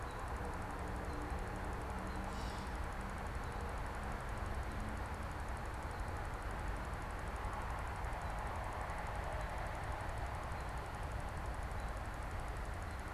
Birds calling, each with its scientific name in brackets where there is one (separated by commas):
Gray Catbird (Dumetella carolinensis), American Robin (Turdus migratorius)